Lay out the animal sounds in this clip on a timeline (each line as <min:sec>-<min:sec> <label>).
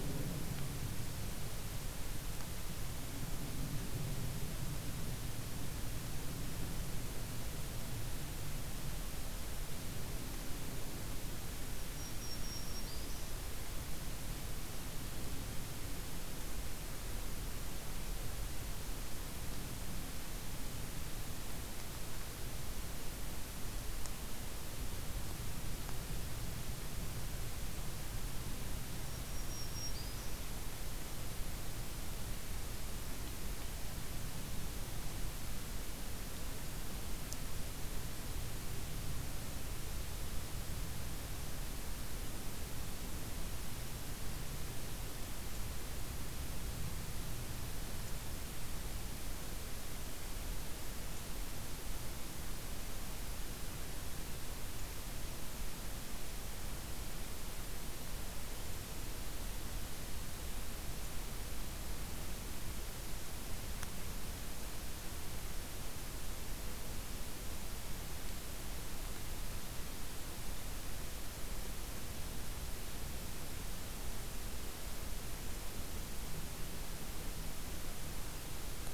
0:11.8-0:13.3 Black-throated Green Warbler (Setophaga virens)
0:29.0-0:30.4 Black-throated Green Warbler (Setophaga virens)